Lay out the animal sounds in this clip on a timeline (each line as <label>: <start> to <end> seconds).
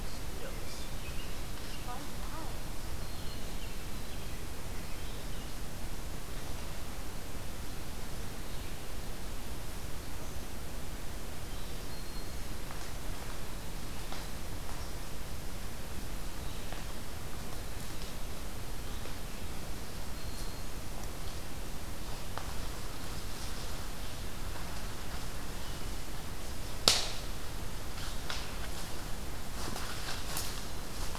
American Robin (Turdus migratorius): 0.5 to 2.0 seconds
American Robin (Turdus migratorius): 2.9 to 5.3 seconds
Black-throated Green Warbler (Setophaga virens): 11.4 to 12.5 seconds
Black-throated Green Warbler (Setophaga virens): 19.7 to 20.8 seconds